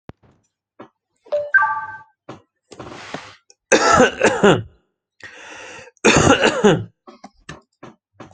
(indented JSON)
{
  "expert_labels": [
    {
      "quality": "ok",
      "cough_type": "unknown",
      "dyspnea": false,
      "wheezing": false,
      "stridor": false,
      "choking": false,
      "congestion": false,
      "nothing": true,
      "diagnosis": "healthy cough",
      "severity": "pseudocough/healthy cough"
    }
  ],
  "age": 30,
  "gender": "male",
  "respiratory_condition": false,
  "fever_muscle_pain": false,
  "status": "symptomatic"
}